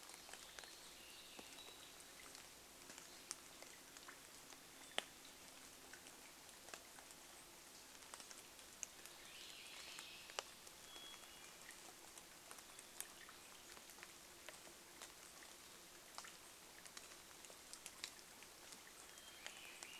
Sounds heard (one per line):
rain
Hermit Thrush song
Swainson's Thrush song